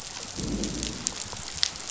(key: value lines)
label: biophony, growl
recorder: SoundTrap 500